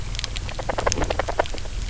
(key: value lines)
label: biophony, knock croak
recorder: SoundTrap 300